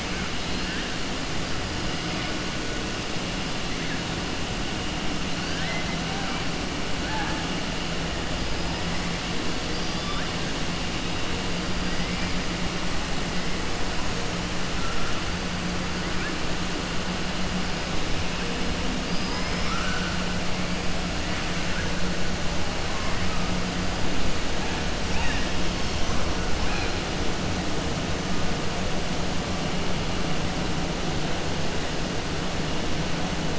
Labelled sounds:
5.3	5.9	killer whale, southern resident, 0.68 to 5.7 kHz
7.0	7.4	killer whale, southern resident, 0.79 to 2.5 kHz
11.9	12.3	killer whale, southern resident, 1.6 to 2.4 kHz
19.0	20.1	killer whale, southern resident, 0.92 to 6.1 kHz
25.0	25.5	killer whale, southern resident, 0.89 to 3.8 kHz

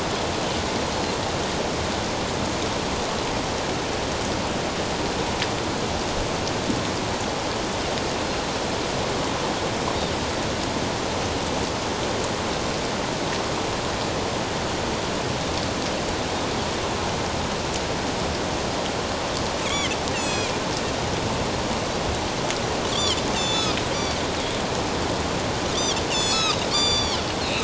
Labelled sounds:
19.6	20.5	Pacific white-sided dolphin, 2.0 to 7.9 kHz
22.9	24.2	Pacific white-sided dolphin, 2.2 to 8.0 kHz
26.1	27.6	Pacific white-sided dolphin, 2.3 to 8.0 kHz

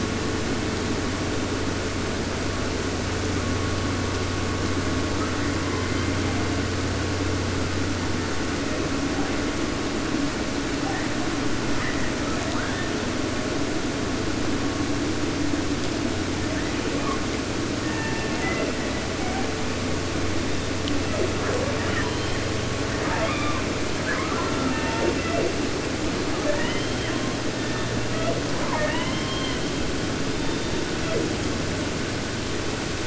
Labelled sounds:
5.2	6.7	killer whale, southern resident, J pod, call S01, 0.42 to 4.0 kHz
10.8	11.3	killer whale, 0.44 to 2.2 kHz
11.7	12.1	killer whale, 0.48 to 2.4 kHz
16.3	17.2	killer whale, southern resident, 0.43 to 2.3 kHz
17.7	18.8	killer whale, southern resident, J pod, call S01, 0.50 to 3.0 kHz
18.8	19.5	killer whale, 0.44 to 2.5 kHz
20.4	21.3	killer whale, southern resident, J pod, call S01, 0.20 to 3.8 kHz
21.8	22.4	killer whale, 0.50 to 5.5 kHz
22.9	23.7	killer whale, 0.50 to 5.7 kHz
24.0	25.7	killer whale, 0.14 to 4.9 kHz
26.3	27.3	killer whale, southern resident, J pod, call S44, 0.37 to 5.8 kHz
27.5	28.4	killer whale, southern resident, J pod, call S01, 0.38 to 4.4 kHz
28.6	29.7	killer whale, southern resident, 0.50 to 6.7 kHz
30.3	31.4	killer whale, southern resident, J pod, call S01, 0.25 to 3.9 kHz

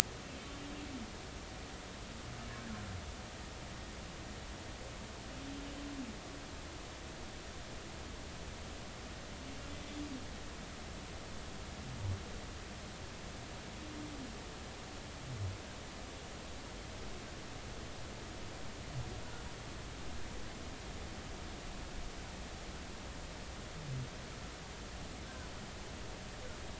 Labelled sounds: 25.2	25.5	humpback whale, 1.4 to 1.6 kHz

